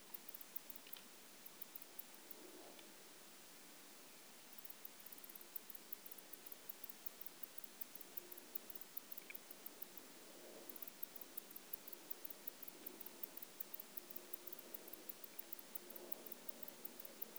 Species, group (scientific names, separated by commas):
Barbitistes fischeri, Orthoptera